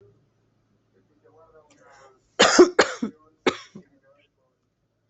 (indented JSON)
{
  "expert_labels": [
    {
      "quality": "good",
      "cough_type": "dry",
      "dyspnea": false,
      "wheezing": false,
      "stridor": false,
      "choking": false,
      "congestion": false,
      "nothing": true,
      "diagnosis": "upper respiratory tract infection",
      "severity": "mild"
    }
  ]
}